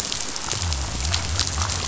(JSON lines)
{"label": "biophony", "recorder": "SoundTrap 500"}